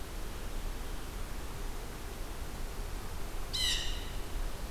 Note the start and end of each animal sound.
[3.45, 4.45] Blue Jay (Cyanocitta cristata)

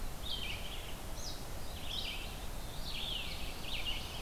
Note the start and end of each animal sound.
[0.00, 4.22] Red-eyed Vireo (Vireo olivaceus)
[2.39, 4.22] Black-throated Blue Warbler (Setophaga caerulescens)

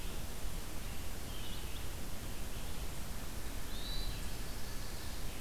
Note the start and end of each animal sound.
[3.56, 4.28] Hermit Thrush (Catharus guttatus)

